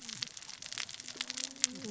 {"label": "biophony, cascading saw", "recorder": "SoundTrap 600 or HydroMoth"}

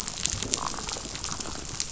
{"label": "biophony", "recorder": "SoundTrap 500"}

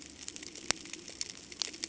{"label": "ambient", "recorder": "HydroMoth"}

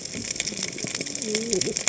{"label": "biophony, cascading saw", "recorder": "HydroMoth"}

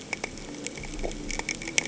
{"label": "anthrophony, boat engine", "recorder": "HydroMoth"}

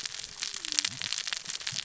{"label": "biophony, cascading saw", "recorder": "SoundTrap 600 or HydroMoth"}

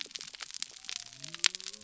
{"label": "biophony", "recorder": "SoundTrap 300"}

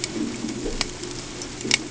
{"label": "ambient", "recorder": "HydroMoth"}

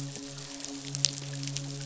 {"label": "biophony, midshipman", "recorder": "SoundTrap 500"}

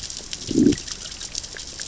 {"label": "biophony, growl", "recorder": "SoundTrap 600 or HydroMoth"}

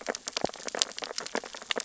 {"label": "biophony, sea urchins (Echinidae)", "recorder": "SoundTrap 600 or HydroMoth"}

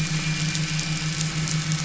{"label": "anthrophony, boat engine", "recorder": "SoundTrap 500"}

